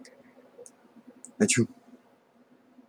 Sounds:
Sneeze